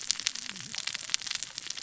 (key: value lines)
label: biophony, cascading saw
recorder: SoundTrap 600 or HydroMoth